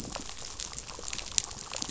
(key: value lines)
label: biophony, rattle response
recorder: SoundTrap 500